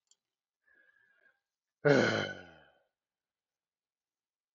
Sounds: Sigh